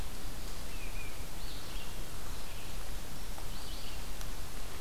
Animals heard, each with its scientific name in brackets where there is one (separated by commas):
Red-eyed Vireo (Vireo olivaceus)